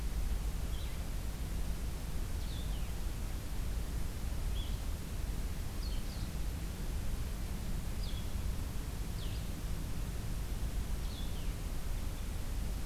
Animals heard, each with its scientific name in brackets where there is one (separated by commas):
Blue-headed Vireo (Vireo solitarius), Red Crossbill (Loxia curvirostra)